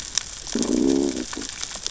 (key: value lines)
label: biophony, growl
recorder: SoundTrap 600 or HydroMoth